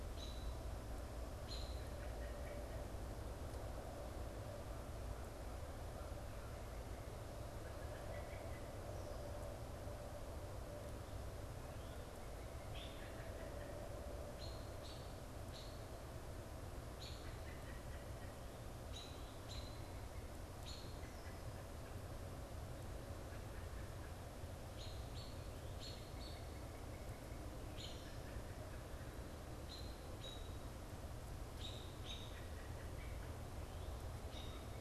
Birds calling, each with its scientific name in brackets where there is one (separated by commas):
American Crow (Corvus brachyrhynchos), Northern Cardinal (Cardinalis cardinalis), American Robin (Turdus migratorius)